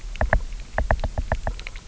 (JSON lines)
{"label": "biophony, knock", "recorder": "SoundTrap 300"}